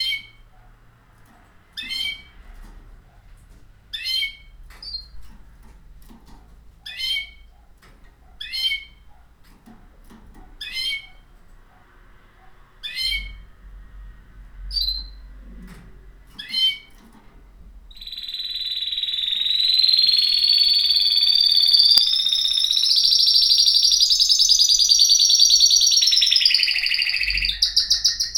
Does the bird get louder towards the end?
yes